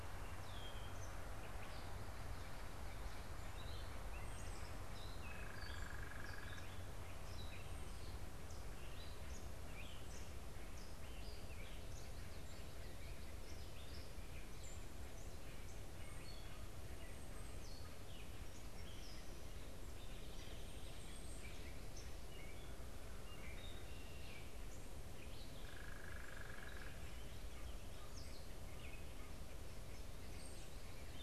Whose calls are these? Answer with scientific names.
Dumetella carolinensis, unidentified bird, Agelaius phoeniceus, Corvus brachyrhynchos